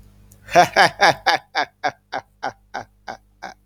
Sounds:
Laughter